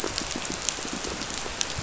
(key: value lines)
label: biophony, pulse
recorder: SoundTrap 500